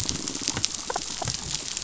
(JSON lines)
{"label": "biophony", "recorder": "SoundTrap 500"}